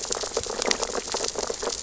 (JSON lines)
{"label": "biophony, sea urchins (Echinidae)", "recorder": "SoundTrap 600 or HydroMoth"}